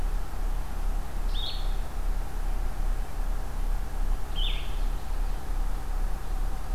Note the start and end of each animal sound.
0.0s-6.7s: Blue-headed Vireo (Vireo solitarius)
4.2s-5.5s: Common Yellowthroat (Geothlypis trichas)

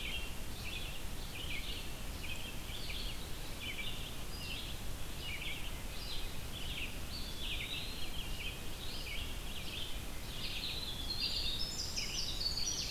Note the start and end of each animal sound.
0.0s-12.9s: Red-eyed Vireo (Vireo olivaceus)
7.0s-8.3s: Eastern Wood-Pewee (Contopus virens)
10.1s-12.9s: Winter Wren (Troglodytes hiemalis)

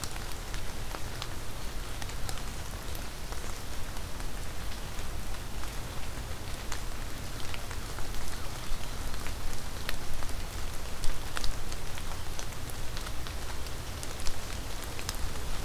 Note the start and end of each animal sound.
7.7s-9.0s: American Crow (Corvus brachyrhynchos)

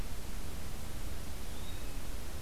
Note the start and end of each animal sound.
1.4s-1.8s: Yellow-bellied Flycatcher (Empidonax flaviventris)

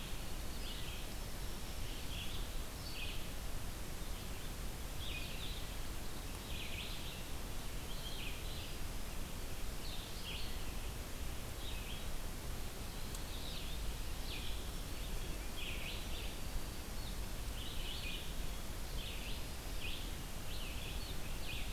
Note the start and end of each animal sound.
0.0s-3.5s: Red-eyed Vireo (Vireo olivaceus)
0.7s-2.4s: Black-throated Green Warbler (Setophaga virens)
3.8s-21.7s: Red-eyed Vireo (Vireo olivaceus)
14.1s-15.5s: Black-throated Green Warbler (Setophaga virens)

